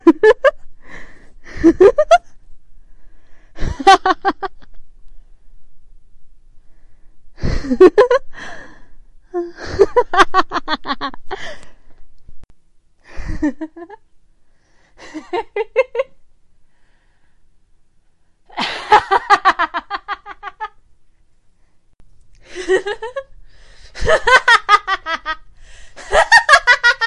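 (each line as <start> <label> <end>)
0.0 A woman laughs loudly and repeatedly. 2.3
0.8 A muffled sound of a woman inhaling. 1.4
3.6 A woman laughs loudly indoors. 4.8
6.6 A muffled sound of a woman inhaling. 7.3
7.4 A woman laughs loudly and repeatedly. 11.8
12.3 An indistinct soft pop. 12.6
13.0 A woman laughs softly indoors. 14.0
15.0 A woman laughs softly indoors. 16.1
18.5 A woman laughs loudly indoors. 20.7
21.9 An indistinct soft pop. 22.2
22.4 A woman laughs loudly and repeatedly. 27.1
23.3 A muffled sound of a woman inhaling. 23.9
25.5 A muffled sound of a woman inhaling. 25.9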